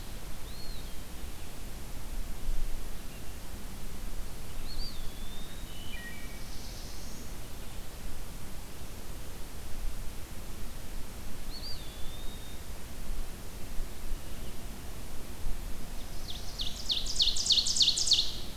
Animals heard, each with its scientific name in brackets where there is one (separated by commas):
Eastern Wood-Pewee (Contopus virens), Black-throated Blue Warbler (Setophaga caerulescens), Ovenbird (Seiurus aurocapilla), Wood Thrush (Hylocichla mustelina)